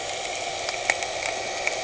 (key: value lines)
label: anthrophony, boat engine
recorder: HydroMoth